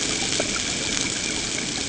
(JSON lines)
{"label": "ambient", "recorder": "HydroMoth"}